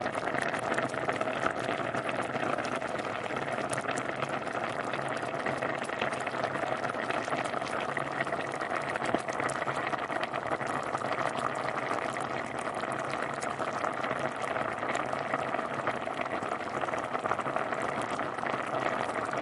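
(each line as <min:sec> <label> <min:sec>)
0:00.0 Water boiling loudly in a steady pattern. 0:19.4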